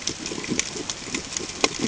{"label": "ambient", "recorder": "HydroMoth"}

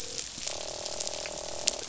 {"label": "biophony, croak", "recorder": "SoundTrap 500"}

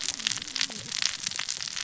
{"label": "biophony, cascading saw", "recorder": "SoundTrap 600 or HydroMoth"}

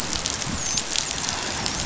{"label": "biophony, dolphin", "recorder": "SoundTrap 500"}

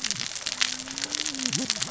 {"label": "biophony, cascading saw", "recorder": "SoundTrap 600 or HydroMoth"}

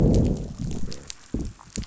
{"label": "biophony, growl", "recorder": "SoundTrap 500"}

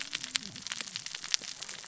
{"label": "biophony, cascading saw", "recorder": "SoundTrap 600 or HydroMoth"}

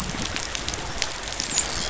{"label": "biophony, dolphin", "recorder": "SoundTrap 500"}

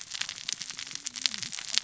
{"label": "biophony, cascading saw", "recorder": "SoundTrap 600 or HydroMoth"}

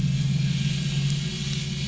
{"label": "anthrophony, boat engine", "recorder": "SoundTrap 500"}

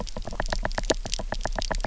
{"label": "biophony, knock", "recorder": "SoundTrap 300"}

